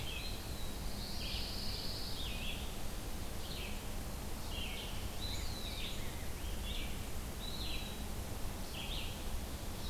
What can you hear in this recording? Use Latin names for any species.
Vireo olivaceus, Setophaga pinus, Contopus virens